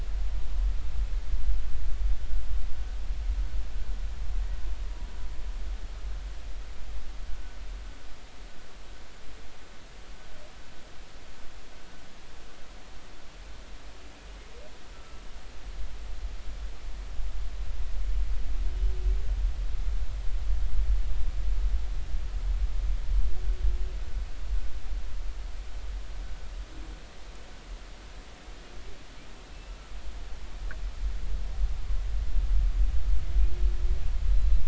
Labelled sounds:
14.9	15.2	humpback whale, 1.3 to 1.4 kHz
29.5	29.7	humpback whale, 2.6 to 2.8 kHz
34.3	34.6	humpback whale, 3.9 to 4.1 kHz

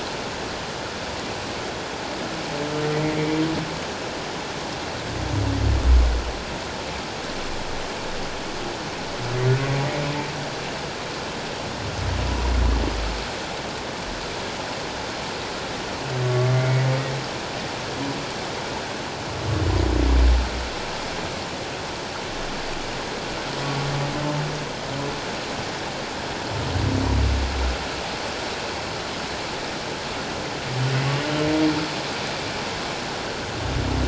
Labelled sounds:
2.9	3.2	humpback whale, 1.9 to 2.1 kHz
16.2	16.9	humpback whale, 1.1 to 2.3 kHz

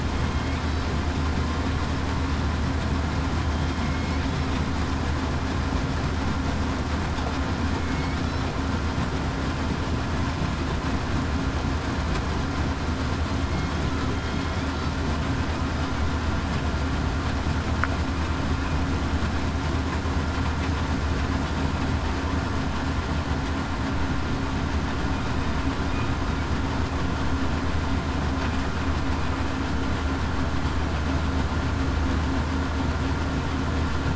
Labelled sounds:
3.8	4.2	killer whale, southern resident, 2.1 to 2.2 kHz
7.8	8.2	killer whale, southern resident, 2.2 to 2.3 kHz

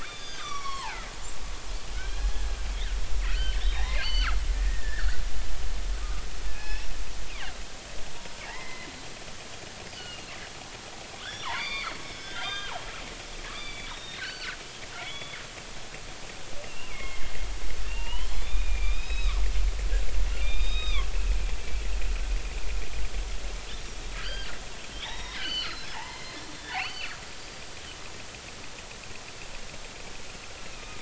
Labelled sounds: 0.0	1.1	killer whale, northern resident, G clan, 0.80 to 6.7 kHz
2.0	2.3	killer whale, northern resident, G clan, 1.4 to 4.2 kHz
2.7	3.0	killer whale, northern resident, G clan, 1.4 to 2.3 kHz
3.3	6.9	killer whale, northern resident, G clan, 1.1 to 4.6 kHz
8.4	8.9	killer whale, northern resident, G clan, 0.80 to 2.2 kHz
9.9	10.3	killer whale, northern resident, G clan, 2.5 to 4.9 kHz
11.2	12.8	killer whale, northern resident, G clan, 0.80 to 6.1 kHz
13.5	14.6	killer whale, northern resident, G clan, 1.3 to 5.7 kHz
15.0	15.4	killer whale, northern resident, G clan, 1.9 to 3.5 kHz
16.6	19.3	killer whale, northern resident, G clan, 0.86 to 5.2 kHz
20.4	21.1	killer whale, northern resident, G clan, 1.0 to 5.1 kHz
24.2	27.6	killer whale, northern resident, G clan, 0.80 to 5.7 kHz

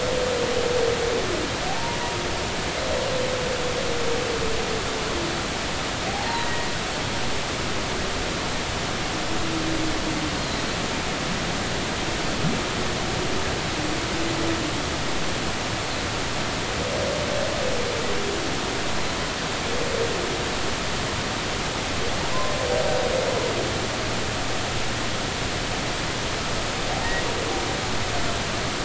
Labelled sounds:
1.7	2.0	humpback whale, 0.80 to 1.0 kHz
6.1	6.7	humpback whale, 0.80 to 4.4 kHz
10.3	10.6	humpback whale, 3.9 to 4.4 kHz

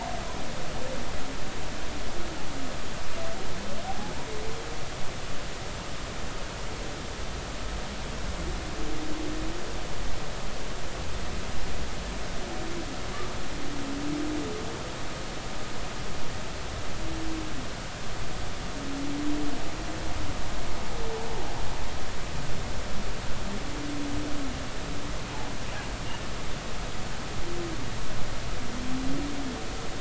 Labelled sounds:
3.8	4.1	humpback whale, 0.80 to 0.90 kHz

